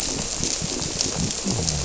{"label": "biophony", "recorder": "SoundTrap 300"}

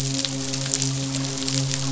{"label": "biophony, midshipman", "recorder": "SoundTrap 500"}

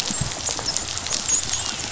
{"label": "biophony, dolphin", "recorder": "SoundTrap 500"}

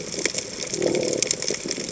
{"label": "biophony", "recorder": "HydroMoth"}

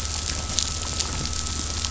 {"label": "anthrophony, boat engine", "recorder": "SoundTrap 500"}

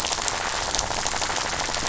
{"label": "biophony, rattle", "recorder": "SoundTrap 500"}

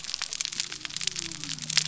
{"label": "biophony", "recorder": "SoundTrap 300"}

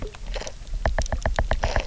{"label": "biophony, knock", "recorder": "SoundTrap 300"}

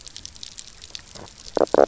{"label": "biophony, knock croak", "recorder": "SoundTrap 300"}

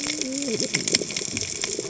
{"label": "biophony, cascading saw", "recorder": "HydroMoth"}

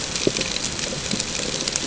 {"label": "ambient", "recorder": "HydroMoth"}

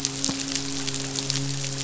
{"label": "biophony, midshipman", "recorder": "SoundTrap 500"}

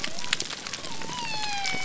{"label": "biophony", "recorder": "SoundTrap 300"}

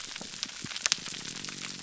{"label": "biophony, grouper groan", "recorder": "SoundTrap 300"}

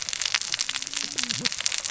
{"label": "biophony, cascading saw", "recorder": "SoundTrap 600 or HydroMoth"}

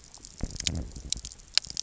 {"label": "biophony", "recorder": "SoundTrap 300"}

